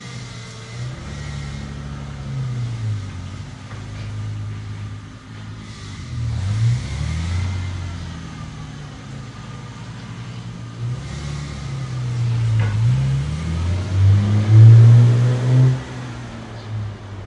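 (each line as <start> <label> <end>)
0.0 A car engine is revving. 3.0
3.1 A car is idling. 6.2
6.2 A car engine is revving. 7.7
7.7 A car is idling. 10.7
10.7 A car with a prominent engine note accelerates away. 17.3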